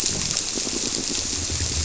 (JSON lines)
{"label": "biophony", "recorder": "SoundTrap 300"}